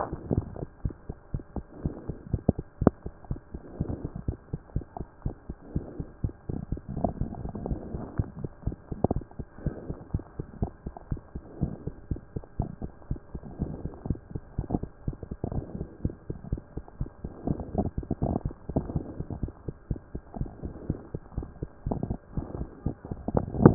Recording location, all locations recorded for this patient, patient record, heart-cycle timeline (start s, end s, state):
tricuspid valve (TV)
aortic valve (AV)+pulmonary valve (PV)+tricuspid valve (TV)+mitral valve (MV)
#Age: Child
#Sex: Male
#Height: 94.0 cm
#Weight: 10.2 kg
#Pregnancy status: False
#Murmur: Absent
#Murmur locations: nan
#Most audible location: nan
#Systolic murmur timing: nan
#Systolic murmur shape: nan
#Systolic murmur grading: nan
#Systolic murmur pitch: nan
#Systolic murmur quality: nan
#Diastolic murmur timing: nan
#Diastolic murmur shape: nan
#Diastolic murmur grading: nan
#Diastolic murmur pitch: nan
#Diastolic murmur quality: nan
#Outcome: Abnormal
#Campaign: 2014 screening campaign
0.00	0.75	unannotated
0.75	0.84	diastole
0.84	0.94	S1
0.94	1.08	systole
1.08	1.16	S2
1.16	1.32	diastole
1.32	1.42	S1
1.42	1.56	systole
1.56	1.64	S2
1.64	1.82	diastole
1.82	1.94	S1
1.94	2.06	systole
2.06	2.16	S2
2.16	2.32	diastole
2.32	2.42	S1
2.42	2.57	systole
2.57	2.64	S2
2.64	2.80	diastole
2.80	2.94	S1
2.94	3.04	systole
3.04	3.12	S2
3.12	3.30	diastole
3.30	3.40	S1
3.40	3.52	systole
3.52	3.62	S2
3.62	3.80	diastole
3.80	3.94	S1
3.94	4.02	systole
4.02	4.10	S2
4.10	4.28	diastole
4.28	4.38	S1
4.38	4.52	systole
4.52	4.60	S2
4.60	4.74	diastole
4.74	4.84	S1
4.84	4.98	systole
4.98	5.06	S2
5.06	5.24	diastole
5.24	5.34	S1
5.34	5.48	systole
5.48	5.56	S2
5.56	5.74	diastole
5.74	5.86	S1
5.86	5.98	systole
5.98	6.06	S2
6.06	6.19	diastole
6.19	23.74	unannotated